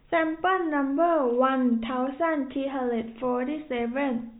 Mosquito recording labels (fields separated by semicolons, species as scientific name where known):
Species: no mosquito; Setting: cup